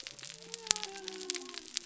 {"label": "biophony", "recorder": "SoundTrap 300"}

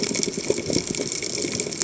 {"label": "biophony", "recorder": "HydroMoth"}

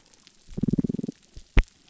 {"label": "biophony", "recorder": "SoundTrap 300"}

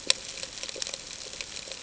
{"label": "ambient", "recorder": "HydroMoth"}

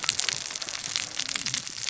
{"label": "biophony, cascading saw", "recorder": "SoundTrap 600 or HydroMoth"}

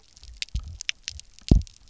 {"label": "biophony, double pulse", "recorder": "SoundTrap 300"}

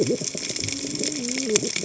{"label": "biophony, cascading saw", "recorder": "HydroMoth"}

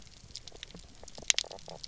{"label": "biophony, knock croak", "recorder": "SoundTrap 300"}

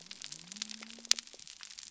{"label": "biophony", "recorder": "SoundTrap 300"}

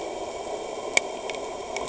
{"label": "anthrophony, boat engine", "recorder": "HydroMoth"}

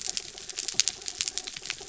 {"label": "anthrophony, mechanical", "recorder": "SoundTrap 300"}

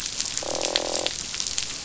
{"label": "biophony, croak", "recorder": "SoundTrap 500"}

